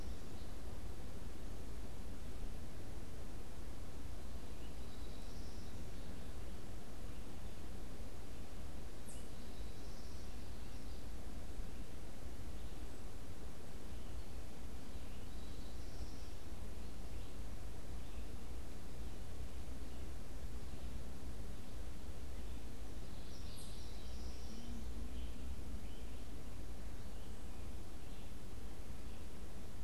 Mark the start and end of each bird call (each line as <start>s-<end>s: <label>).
0.0s-16.7s: American Goldfinch (Spinus tristis)
22.9s-25.1s: American Goldfinch (Spinus tristis)